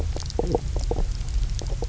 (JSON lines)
{"label": "biophony, knock croak", "recorder": "SoundTrap 300"}